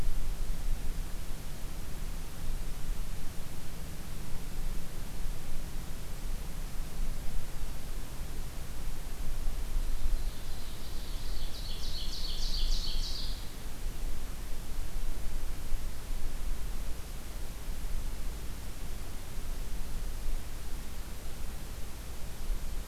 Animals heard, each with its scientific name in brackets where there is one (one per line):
Ovenbird (Seiurus aurocapilla)